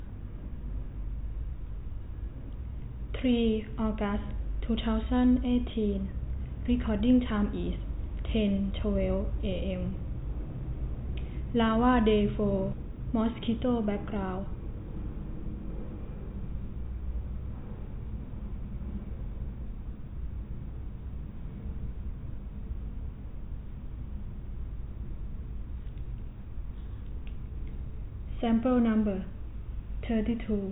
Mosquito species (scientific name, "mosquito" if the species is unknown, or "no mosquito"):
no mosquito